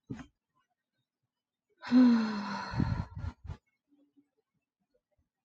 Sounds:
Sigh